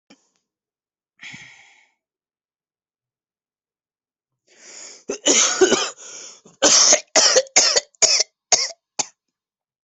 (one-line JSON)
{"expert_labels": [{"quality": "good", "cough_type": "dry", "dyspnea": false, "wheezing": false, "stridor": false, "choking": false, "congestion": false, "nothing": true, "diagnosis": "COVID-19", "severity": "severe"}], "age": 25, "gender": "male", "respiratory_condition": false, "fever_muscle_pain": false, "status": "COVID-19"}